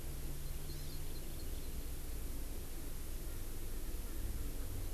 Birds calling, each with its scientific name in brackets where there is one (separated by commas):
Hawaii Amakihi (Chlorodrepanis virens), Erckel's Francolin (Pternistis erckelii)